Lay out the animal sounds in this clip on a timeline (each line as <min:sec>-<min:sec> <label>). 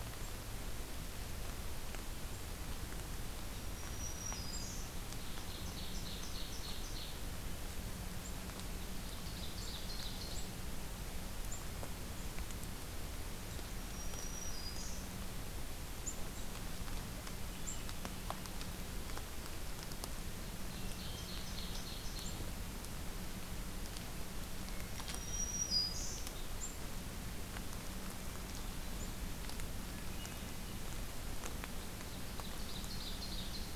0:03.6-0:04.9 Black-throated Green Warbler (Setophaga virens)
0:05.2-0:07.2 Ovenbird (Seiurus aurocapilla)
0:08.9-0:10.5 Ovenbird (Seiurus aurocapilla)
0:13.7-0:15.1 Black-throated Green Warbler (Setophaga virens)
0:17.4-0:18.8 Hermit Thrush (Catharus guttatus)
0:20.6-0:21.5 Hermit Thrush (Catharus guttatus)
0:20.6-0:22.4 Ovenbird (Seiurus aurocapilla)
0:24.6-0:25.7 Hermit Thrush (Catharus guttatus)
0:24.9-0:26.2 Black-throated Green Warbler (Setophaga virens)
0:28.2-0:29.1 Hermit Thrush (Catharus guttatus)
0:29.9-0:31.0 Hermit Thrush (Catharus guttatus)
0:31.7-0:33.8 Ovenbird (Seiurus aurocapilla)